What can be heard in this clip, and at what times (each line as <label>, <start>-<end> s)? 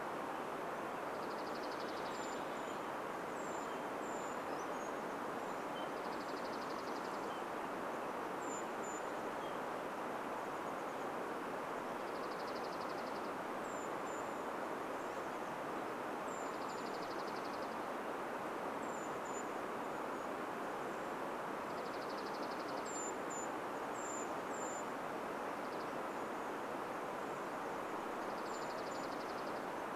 Dark-eyed Junco song, 0-4 s
Brown Creeper call, 2-4 s
Brown Creeper song, 4-6 s
Dark-eyed Junco song, 6-8 s
Brown Creeper call, 6-10 s
Chestnut-backed Chickadee call, 10-12 s
Dark-eyed Junco song, 12-14 s
Brown Creeper call, 12-30 s
Dark-eyed Junco song, 16-18 s
Dark-eyed Junco song, 20-26 s
Dark-eyed Junco song, 28-30 s